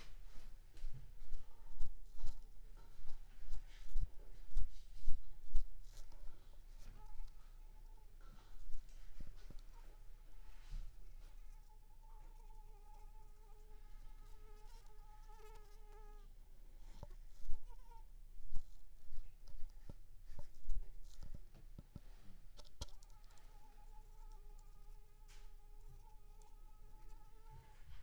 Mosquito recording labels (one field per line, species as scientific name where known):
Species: Anopheles squamosus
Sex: female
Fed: unfed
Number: one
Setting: cup